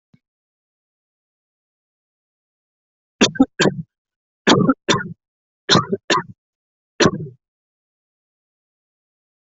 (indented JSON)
{
  "expert_labels": [
    {
      "quality": "poor",
      "cough_type": "unknown",
      "dyspnea": false,
      "wheezing": false,
      "stridor": false,
      "choking": false,
      "congestion": false,
      "nothing": true,
      "diagnosis": "upper respiratory tract infection",
      "severity": "unknown"
    }
  ],
  "age": 20,
  "gender": "male",
  "respiratory_condition": false,
  "fever_muscle_pain": false,
  "status": "COVID-19"
}